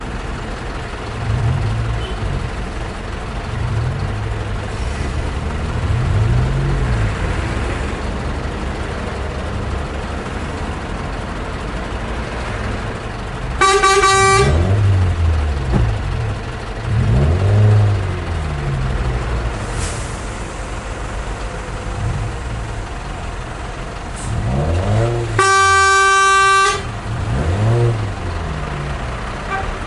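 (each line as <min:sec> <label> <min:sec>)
0:00.0 Vehicles move on an urban street while a car engine idles nearby. 0:29.9
0:13.2 A truck honks two to three times with medium-length bursts. 0:15.2
0:14.4 A car engine revs loudly as the vehicle struggles to move. 0:15.9
0:16.7 A car engine revs loudly as the vehicle struggles to move. 0:19.3
0:24.1 A car engine revs loudly as the vehicle struggles to move. 0:25.4
0:25.2 A truck horn blasts loudly and intensely, expressing frustration or urgency. 0:27.5
0:27.3 A car engine revs loudly as the vehicle struggles to move. 0:28.7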